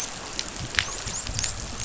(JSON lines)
{"label": "biophony, dolphin", "recorder": "SoundTrap 500"}